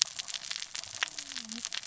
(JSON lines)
{"label": "biophony, cascading saw", "recorder": "SoundTrap 600 or HydroMoth"}